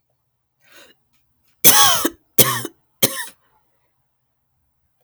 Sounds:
Cough